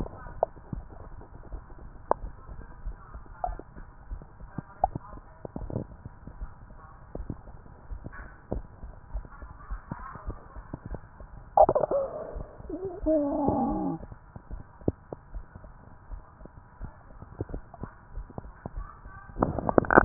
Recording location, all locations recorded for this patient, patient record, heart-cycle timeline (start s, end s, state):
mitral valve (MV)
aortic valve (AV)+pulmonary valve (PV)+tricuspid valve (TV)+mitral valve (MV)
#Age: Adolescent
#Sex: Female
#Height: 153.0 cm
#Weight: 56.1 kg
#Pregnancy status: False
#Murmur: Absent
#Murmur locations: nan
#Most audible location: nan
#Systolic murmur timing: nan
#Systolic murmur shape: nan
#Systolic murmur grading: nan
#Systolic murmur pitch: nan
#Systolic murmur quality: nan
#Diastolic murmur timing: nan
#Diastolic murmur shape: nan
#Diastolic murmur grading: nan
#Diastolic murmur pitch: nan
#Diastolic murmur quality: nan
#Outcome: Normal
#Campaign: 2015 screening campaign
0.00	14.49	unannotated
14.49	14.64	S1
14.64	14.84	systole
14.84	15.00	S2
15.00	15.34	diastole
15.34	15.46	S1
15.46	15.61	systole
15.61	15.72	S2
15.72	16.06	diastole
16.06	16.20	S1
16.20	16.38	systole
16.38	16.51	S2
16.51	16.80	diastole
16.80	16.96	S1
16.96	17.12	systole
17.12	17.26	S2
17.26	17.48	diastole
17.48	17.66	S1
17.66	17.80	systole
17.80	17.90	S2
17.90	18.14	diastole
18.14	18.28	S1
18.28	18.42	systole
18.42	18.56	S2
18.56	18.76	diastole
18.76	18.88	S1
18.88	19.02	systole
19.02	19.14	S2
19.14	19.38	diastole
19.38	20.05	unannotated